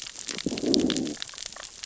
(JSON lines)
{"label": "biophony, growl", "recorder": "SoundTrap 600 or HydroMoth"}